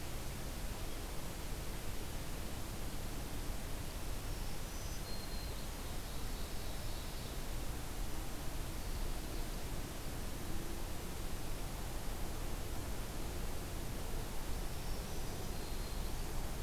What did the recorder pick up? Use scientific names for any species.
Setophaga virens, Seiurus aurocapilla